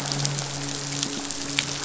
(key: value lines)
label: biophony, midshipman
recorder: SoundTrap 500